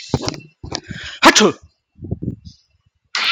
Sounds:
Sneeze